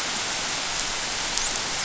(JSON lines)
{"label": "biophony, dolphin", "recorder": "SoundTrap 500"}